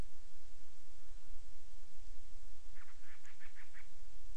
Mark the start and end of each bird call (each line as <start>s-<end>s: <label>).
2.6s-4.0s: Band-rumped Storm-Petrel (Hydrobates castro)